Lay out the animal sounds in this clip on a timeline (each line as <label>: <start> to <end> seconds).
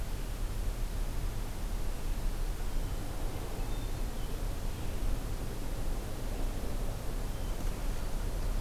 Hermit Thrush (Catharus guttatus): 3.2 to 4.5 seconds